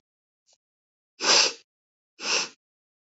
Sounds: Sniff